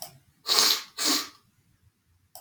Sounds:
Sniff